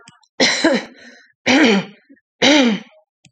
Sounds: Throat clearing